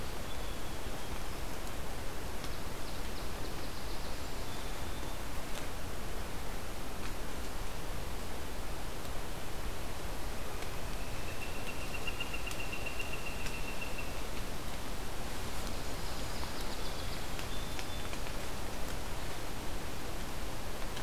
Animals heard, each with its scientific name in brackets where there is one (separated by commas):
Northern Flicker (Colaptes auratus), Song Sparrow (Melospiza melodia)